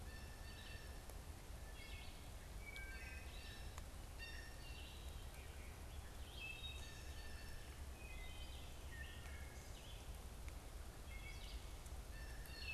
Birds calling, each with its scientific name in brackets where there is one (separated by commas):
Wood Thrush (Hylocichla mustelina), Blue Jay (Cyanocitta cristata), Red-eyed Vireo (Vireo olivaceus)